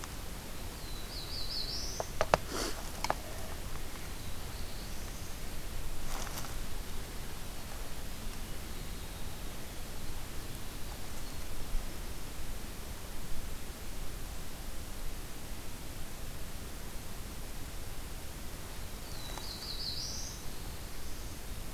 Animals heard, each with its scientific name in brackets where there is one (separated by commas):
Black-throated Blue Warbler (Setophaga caerulescens), Winter Wren (Troglodytes hiemalis)